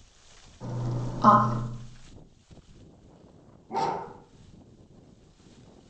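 At 0.82 seconds, a voice says "off". Then at 3.69 seconds, a dog barks. A faint steady noise runs about 30 dB below the sounds.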